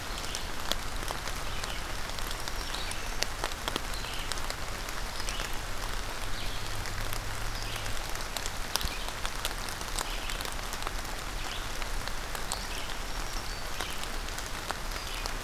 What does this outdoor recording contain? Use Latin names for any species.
Vireo olivaceus, Setophaga virens